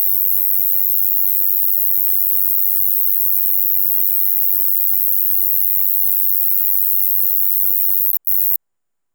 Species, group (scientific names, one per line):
Ruspolia nitidula
Orthoptera